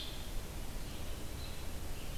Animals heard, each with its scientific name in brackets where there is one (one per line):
Blue-headed Vireo (Vireo solitarius)